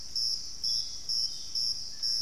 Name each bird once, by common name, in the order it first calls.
Dusky-throated Antshrike, Ringed Antpipit